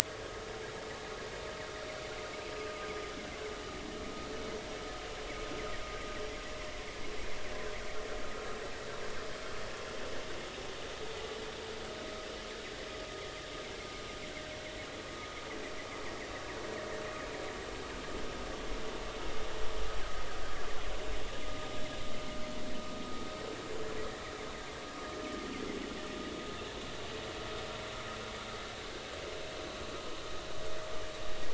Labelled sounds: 13.6	13.9	vessel noise, 2.1 to 2.4 kHz
28.8	29.1	vessel noise, 1.5 to 1.6 kHz

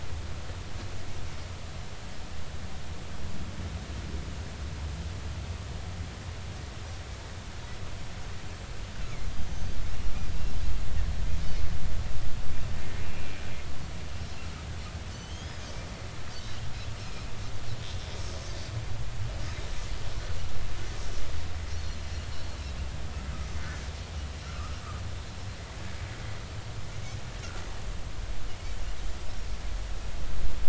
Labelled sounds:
9.5	9.8	Pacific white-sided dolphin, 6.1 to 6.3 kHz
13.0	13.4	Pacific white-sided dolphin, 2.3 to 2.8 kHz
15.1	15.6	Pacific white-sided dolphin, 2.9 to 3.5 kHz
21.7	22.0	Pacific white-sided dolphin, 4.1 to 4.5 kHz
24.5	24.8	Pacific white-sided dolphin, 1.1 to 1.4 kHz

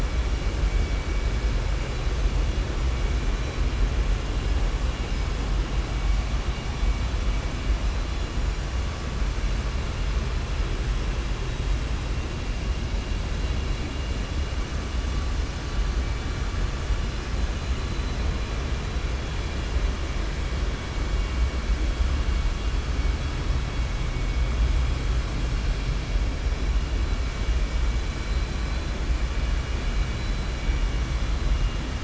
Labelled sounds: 13.4	14.2	vessel noise, 2.4 to 3.4 kHz

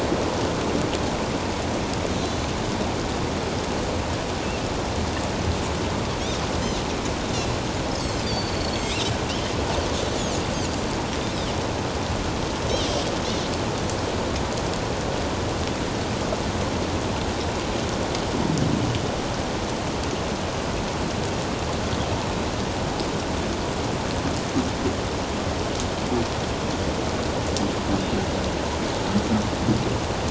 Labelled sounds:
2.2	2.5	Pacific white-sided dolphin, 3.9 to 4.2 kHz
8.2	9.2	Pacific white-sided dolphin, 3.5 to 7.7 kHz

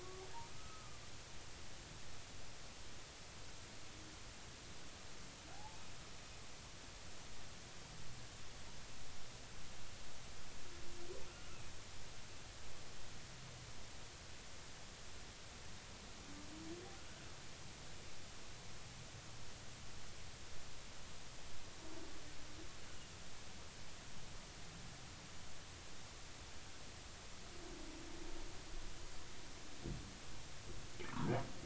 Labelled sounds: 0.0	1.0	humpback whale, 1.0 to 1.3 kHz
5.5	5.8	humpback whale, 0.80 to 0.93 kHz
31.1	31.4	humpback whale, 0.90 to 1.6 kHz

